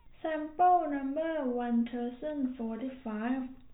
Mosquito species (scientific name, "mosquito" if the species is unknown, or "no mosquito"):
no mosquito